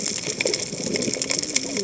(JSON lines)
{"label": "biophony, cascading saw", "recorder": "HydroMoth"}